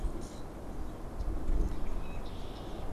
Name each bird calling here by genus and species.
Quiscalus quiscula, Agelaius phoeniceus